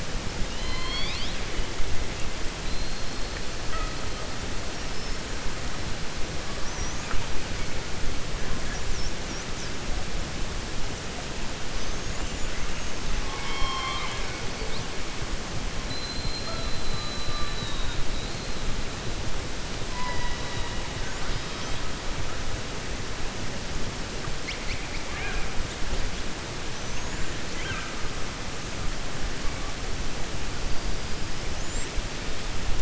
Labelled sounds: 0.4	1.4	killer whale, 1.0 to 5.4 kHz
13.2	14.3	killer whale, 0.78 to 5.6 kHz
19.9	20.8	killer whale, 0.54 to 5.0 kHz

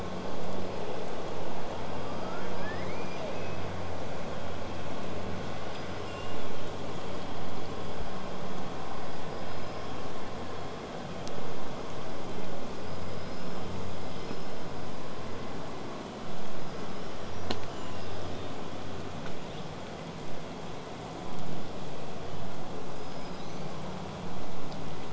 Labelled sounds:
1.8	3.7	killer whale, southern resident, L pod, call S19, 0.82 to 8.0 kHz
5.7	6.7	killer whale, southern resident, 2.6 to 8.0 kHz
12.6	14.7	killer whale, southern resident, 4.7 to 8.0 kHz
16.5	19.0	killer whale, southern resident, whistle, 2.5 to 8.0 kHz
19.3	19.7	killer whale, southern resident, 1.9 to 4.4 kHz

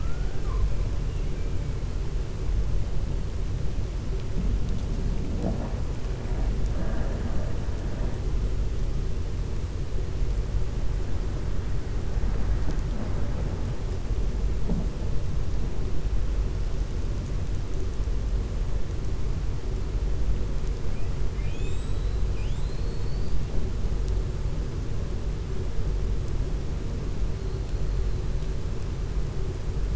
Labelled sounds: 21.3	23.4	killer whale, 1.8 to 8.0 kHz

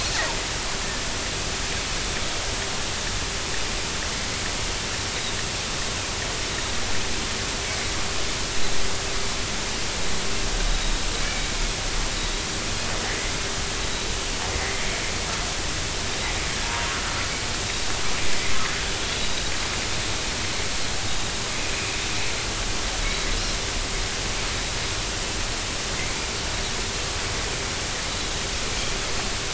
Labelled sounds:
11.2	11.5	Pacific white-sided dolphin, 2.2 to 2.4 kHz
16.6	16.9	Pacific white-sided dolphin, 0.83 to 1.1 kHz
21.1	21.3	Pacific white-sided dolphin, 3.6 to 3.8 kHz
23.0	23.3	Pacific white-sided dolphin, 3.8 to 4.0 kHz

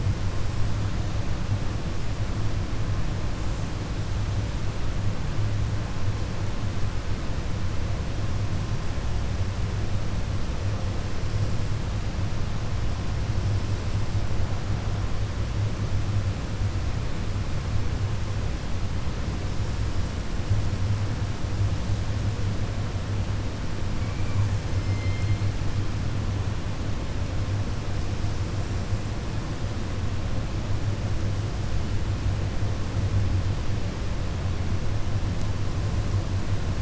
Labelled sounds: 24.7	25.4	killer whale, 2.1 to 5.3 kHz

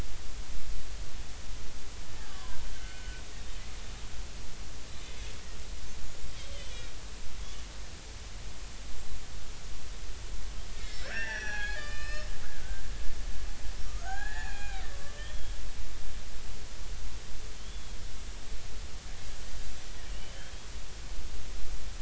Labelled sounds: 2.3	3.4	killer whale, Bigg's (transient), 0.93 to 1.9 kHz
10.8	12.8	killer whale, Bigg's (transient), 0.80 to 5.8 kHz
13.8	15.5	killer whale, Bigg's (transient), 0.80 to 7.0 kHz
17.6	18.0	killer whale, Bigg's (transient), 3.0 to 3.5 kHz
20.1	20.7	killer whale, Bigg's (transient), 2.7 to 3.3 kHz

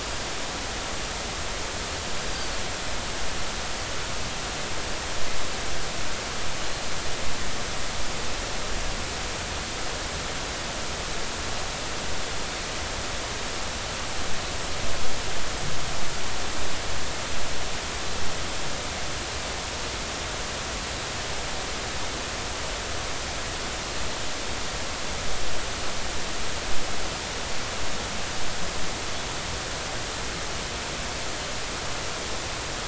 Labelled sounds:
2.3	2.6	Pacific white-sided dolphin, 4.3 to 4.9 kHz

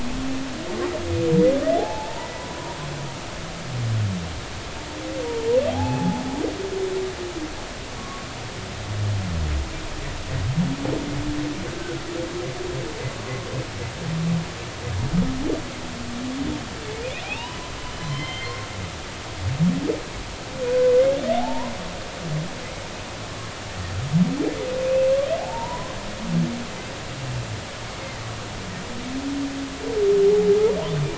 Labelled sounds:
1.8	2.8	humpback whale, 0.80 to 1.1 kHz
5.7	6.2	humpback whale, 0.80 to 0.93 kHz
8.0	8.3	humpback whale, 1.1 to 1.2 kHz
17.2	17.6	humpback whale, 0.80 to 3.1 kHz
18.1	18.7	humpback whale, 2.0 to 4.4 kHz
20.6	20.9	humpback whale, 1.4 to 1.6 kHz
21.4	21.7	humpback whale, 0.80 to 1.1 kHz
25.4	25.9	humpback whale, 0.80 to 1.1 kHz

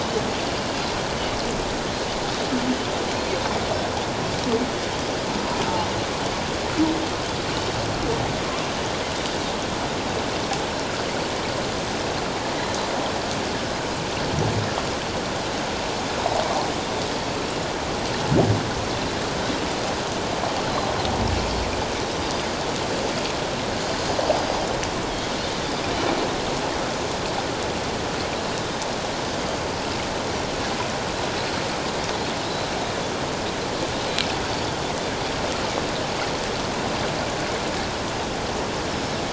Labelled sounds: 20.6	20.9	Pacific white-sided dolphin, 4.0 to 4.2 kHz

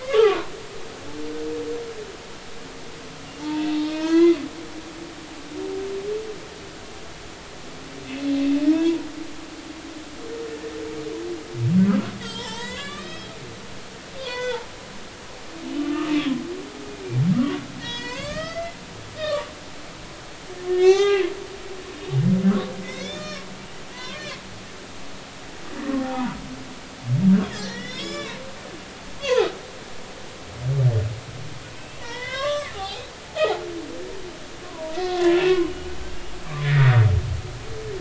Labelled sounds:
0.2	0.5	humpback whale, 0.90 to 1.4 kHz
3.4	4.4	humpback whale, 0.83 to 3.5 kHz
8.7	9.1	humpback whale, 0.86 to 2.7 kHz
11.9	13.3	humpback whale, 0.83 to 7.8 kHz
14.2	14.6	humpback whale, 0.93 to 6.1 kHz
15.8	16.4	humpback whale, 0.99 to 1.3 kHz
17.3	18.8	humpback whale, 0.90 to 6.9 kHz
19.2	19.5	humpback whale, 1.1 to 1.3 kHz
20.7	21.3	humpback whale, 0.80 to 6.5 kHz
22.8	24.2	humpback whale, 0.93 to 6.7 kHz
25.8	26.4	humpback whale, 0.80 to 1.1 kHz
27.5	28.4	humpback whale, 0.93 to 7.6 kHz
29.2	29.5	humpback whale, 0.80 to 1.2 kHz
31.7	33.1	humpback whale, 0.80 to 3.9 kHz
34.6	36.8	humpback whale, 0.90 to 3.0 kHz

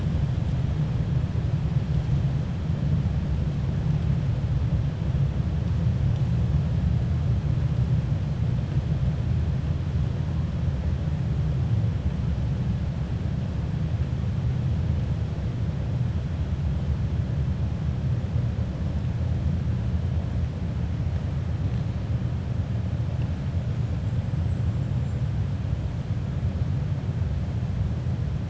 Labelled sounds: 24.4	25.2	killer whale, 7.2 to 8.0 kHz

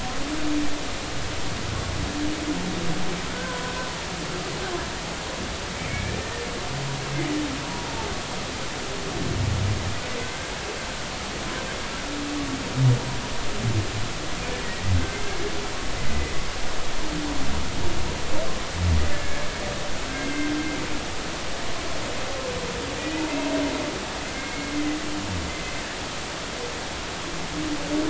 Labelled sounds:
3.3	3.9	humpback whale, 0.96 to 1.6 kHz
5.9	6.2	humpback whale, 1.6 to 2.5 kHz
15.0	15.4	humpback whale, 1.5 to 2.2 kHz
19.1	19.4	humpback whale, 1.6 to 1.8 kHz
20.1	20.5	humpback whale, 1.5 to 2.2 kHz
24.0	24.7	humpback whale, 2.1 to 2.6 kHz

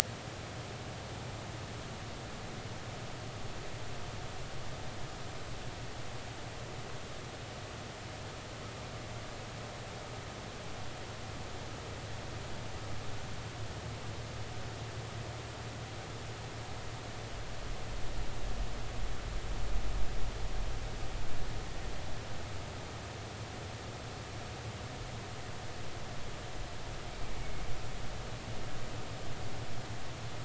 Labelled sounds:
27.4	27.6	humpback whale, 2.1 to 2.3 kHz

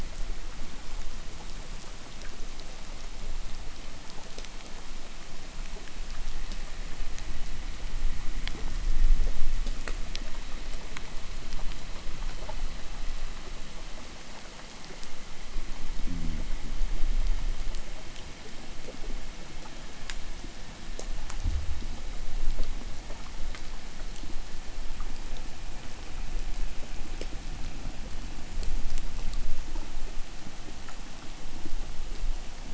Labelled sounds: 15.7	16.7	fish, 0 to 0.54 kHz

